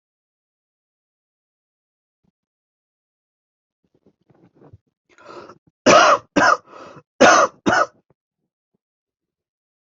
{"expert_labels": [{"quality": "ok", "cough_type": "dry", "dyspnea": false, "wheezing": false, "stridor": false, "choking": false, "congestion": false, "nothing": true, "diagnosis": "upper respiratory tract infection", "severity": "mild"}]}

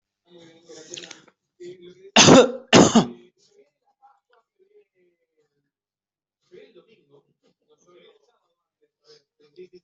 {"expert_labels": [{"quality": "good", "cough_type": "dry", "dyspnea": false, "wheezing": false, "stridor": false, "choking": false, "congestion": false, "nothing": true, "diagnosis": "healthy cough", "severity": "pseudocough/healthy cough"}]}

